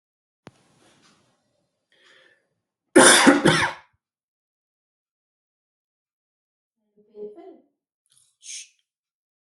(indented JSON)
{
  "expert_labels": [
    {
      "quality": "ok",
      "cough_type": "dry",
      "dyspnea": false,
      "wheezing": false,
      "stridor": false,
      "choking": false,
      "congestion": false,
      "nothing": true,
      "diagnosis": "lower respiratory tract infection",
      "severity": "mild"
    },
    {
      "quality": "ok",
      "cough_type": "dry",
      "dyspnea": false,
      "wheezing": false,
      "stridor": false,
      "choking": false,
      "congestion": false,
      "nothing": true,
      "diagnosis": "upper respiratory tract infection",
      "severity": "mild"
    },
    {
      "quality": "good",
      "cough_type": "dry",
      "dyspnea": false,
      "wheezing": false,
      "stridor": false,
      "choking": false,
      "congestion": false,
      "nothing": true,
      "diagnosis": "healthy cough",
      "severity": "pseudocough/healthy cough"
    },
    {
      "quality": "good",
      "cough_type": "dry",
      "dyspnea": false,
      "wheezing": false,
      "stridor": false,
      "choking": false,
      "congestion": false,
      "nothing": true,
      "diagnosis": "healthy cough",
      "severity": "pseudocough/healthy cough"
    }
  ]
}